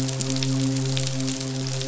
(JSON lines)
{"label": "biophony, midshipman", "recorder": "SoundTrap 500"}